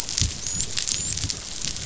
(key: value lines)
label: biophony, dolphin
recorder: SoundTrap 500